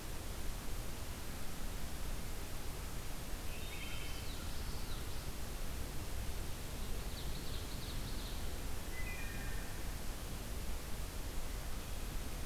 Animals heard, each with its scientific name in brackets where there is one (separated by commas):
Ovenbird (Seiurus aurocapilla), Common Yellowthroat (Geothlypis trichas), Wood Thrush (Hylocichla mustelina)